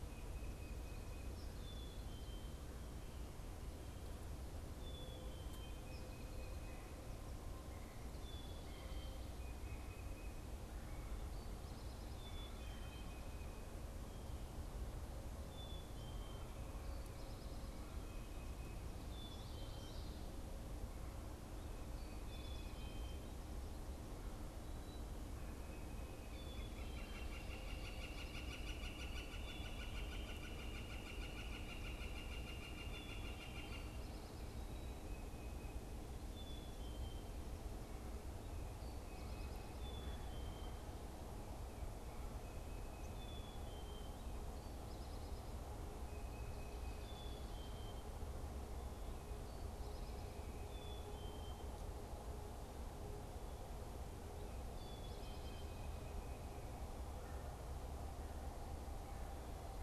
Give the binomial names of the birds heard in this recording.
Baeolophus bicolor, Poecile atricapillus, Colaptes auratus